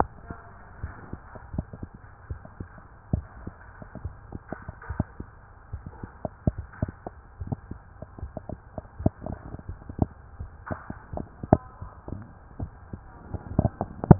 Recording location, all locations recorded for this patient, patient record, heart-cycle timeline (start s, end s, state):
mitral valve (MV)
aortic valve (AV)+pulmonary valve (PV)+tricuspid valve (TV)+mitral valve (MV)
#Age: Child
#Sex: Male
#Height: 149.0 cm
#Weight: 52.9 kg
#Pregnancy status: False
#Murmur: Present
#Murmur locations: pulmonary valve (PV)+tricuspid valve (TV)
#Most audible location: tricuspid valve (TV)
#Systolic murmur timing: Early-systolic
#Systolic murmur shape: Plateau
#Systolic murmur grading: I/VI
#Systolic murmur pitch: Low
#Systolic murmur quality: Blowing
#Diastolic murmur timing: nan
#Diastolic murmur shape: nan
#Diastolic murmur grading: nan
#Diastolic murmur pitch: nan
#Diastolic murmur quality: nan
#Outcome: Normal
#Campaign: 2015 screening campaign
0.00	0.75	unannotated
0.75	0.91	S1
0.91	1.10	systole
1.10	1.22	S2
1.22	1.54	diastole
1.54	1.66	S1
1.66	1.79	systole
1.79	1.88	S2
1.88	2.27	diastole
2.27	2.40	S1
2.40	2.56	systole
2.56	2.68	S2
2.68	3.12	diastole
3.12	3.26	S1
3.26	3.43	systole
3.43	3.56	S2
3.56	4.00	diastole
4.00	4.16	S1
4.16	4.33	systole
4.33	4.43	S2
4.43	4.86	diastole
4.86	4.96	S1
4.96	5.16	systole
5.16	5.28	S2
5.28	5.70	diastole
5.70	5.84	S1
5.84	6.00	systole
6.00	6.11	S2
6.11	6.54	diastole
6.54	6.64	S1
6.64	6.82	systole
6.82	6.92	S2
6.92	7.38	diastole
7.38	7.47	S1
7.47	7.68	systole
7.68	7.78	S2
7.78	8.21	diastole
8.21	8.33	S1
8.33	14.19	unannotated